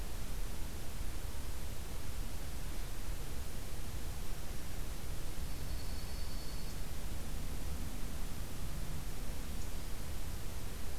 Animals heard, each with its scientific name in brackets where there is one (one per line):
Dark-eyed Junco (Junco hyemalis)